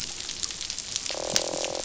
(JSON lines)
{"label": "biophony, croak", "recorder": "SoundTrap 500"}